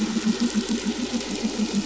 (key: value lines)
label: anthrophony, boat engine
recorder: SoundTrap 500